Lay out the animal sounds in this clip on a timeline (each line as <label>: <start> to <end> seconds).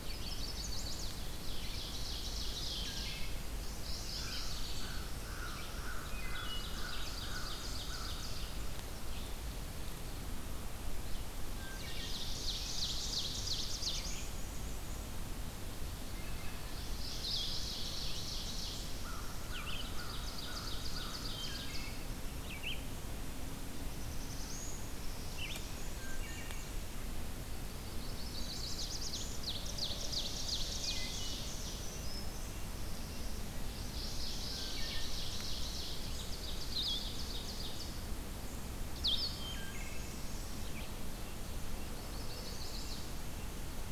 Chestnut-sided Warbler (Setophaga pensylvanica): 0.0 to 1.2 seconds
Ovenbird (Seiurus aurocapilla): 1.3 to 3.2 seconds
Wood Thrush (Hylocichla mustelina): 2.6 to 3.4 seconds
Mourning Warbler (Geothlypis philadelphia): 3.4 to 4.9 seconds
American Crow (Corvus brachyrhynchos): 4.2 to 8.2 seconds
Wood Thrush (Hylocichla mustelina): 6.0 to 6.7 seconds
Ovenbird (Seiurus aurocapilla): 6.3 to 8.6 seconds
Red-eyed Vireo (Vireo olivaceus): 9.1 to 43.9 seconds
Wood Thrush (Hylocichla mustelina): 11.4 to 12.3 seconds
Ovenbird (Seiurus aurocapilla): 11.6 to 14.2 seconds
Black-throated Blue Warbler (Setophaga caerulescens): 13.2 to 14.3 seconds
Black-and-white Warbler (Mniotilta varia): 13.9 to 15.1 seconds
Wood Thrush (Hylocichla mustelina): 16.0 to 16.9 seconds
Ovenbird (Seiurus aurocapilla): 16.4 to 21.9 seconds
American Crow (Corvus brachyrhynchos): 18.9 to 21.2 seconds
Wood Thrush (Hylocichla mustelina): 21.2 to 21.9 seconds
Black-throated Blue Warbler (Setophaga caerulescens): 23.7 to 24.9 seconds
Chestnut-sided Warbler (Setophaga pensylvanica): 25.0 to 25.8 seconds
Black-and-white Warbler (Mniotilta varia): 25.4 to 26.7 seconds
Wood Thrush (Hylocichla mustelina): 26.0 to 26.7 seconds
Chestnut-sided Warbler (Setophaga pensylvanica): 28.0 to 28.9 seconds
Black-throated Blue Warbler (Setophaga caerulescens): 28.1 to 29.4 seconds
Ovenbird (Seiurus aurocapilla): 29.0 to 31.7 seconds
Wood Thrush (Hylocichla mustelina): 30.7 to 31.2 seconds
Red-breasted Nuthatch (Sitta canadensis): 31.0 to 33.3 seconds
Black-throated Green Warbler (Setophaga virens): 31.4 to 32.6 seconds
Black-throated Blue Warbler (Setophaga caerulescens): 32.5 to 33.7 seconds
Ovenbird (Seiurus aurocapilla): 33.8 to 38.0 seconds
Black-and-white Warbler (Mniotilta varia): 39.0 to 40.5 seconds
Wood Thrush (Hylocichla mustelina): 39.3 to 40.2 seconds
Red-breasted Nuthatch (Sitta canadensis): 41.0 to 43.2 seconds
Chestnut-sided Warbler (Setophaga pensylvanica): 41.8 to 43.1 seconds